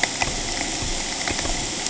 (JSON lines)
{"label": "ambient", "recorder": "HydroMoth"}